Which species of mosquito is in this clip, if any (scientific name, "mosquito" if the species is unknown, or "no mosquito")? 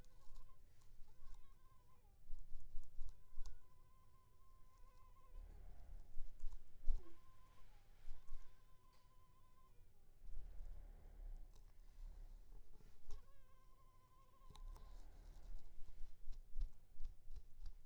Culex pipiens complex